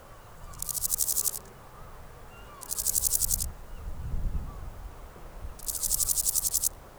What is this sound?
Chorthippus binotatus, an orthopteran